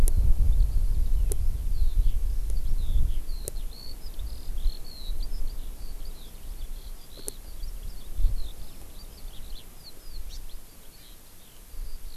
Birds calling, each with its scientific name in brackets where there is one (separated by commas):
Hawaii Amakihi (Chlorodrepanis virens), Eurasian Skylark (Alauda arvensis)